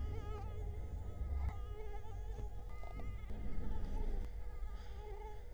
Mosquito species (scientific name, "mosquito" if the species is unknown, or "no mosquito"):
Culex quinquefasciatus